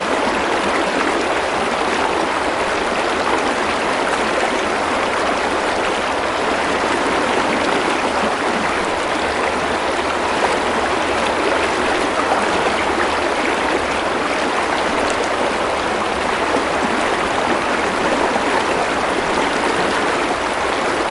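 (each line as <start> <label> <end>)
0.0 Flowing water falling loudly and relaxing. 21.1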